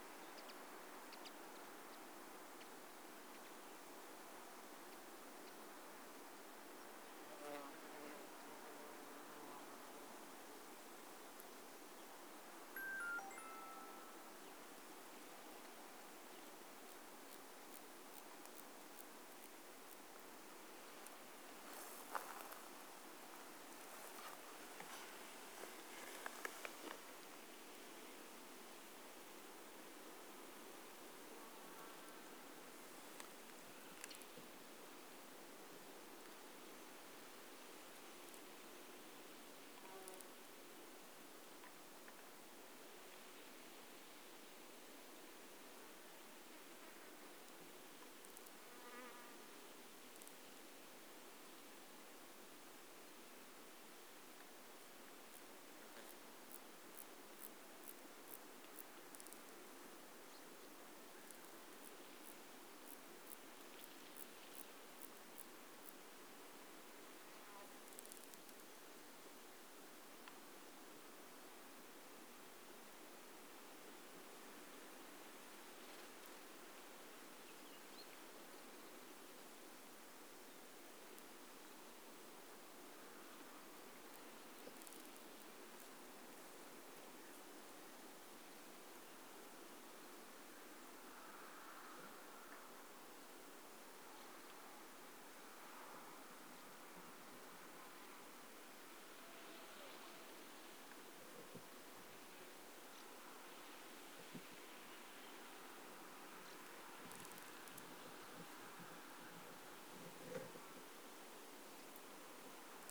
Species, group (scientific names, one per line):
Dociostaurus jagoi
Orthoptera